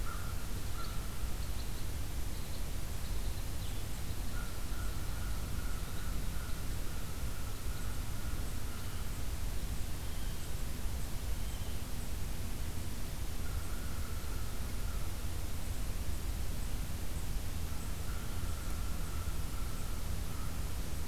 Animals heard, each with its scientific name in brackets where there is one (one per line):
Red Crossbill (Loxia curvirostra)
American Crow (Corvus brachyrhynchos)